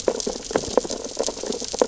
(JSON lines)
{"label": "biophony, sea urchins (Echinidae)", "recorder": "SoundTrap 600 or HydroMoth"}